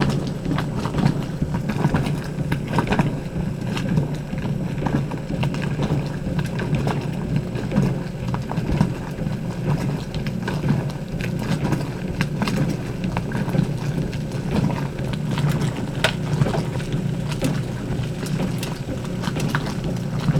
Could this be the sound of a washing machine?
yes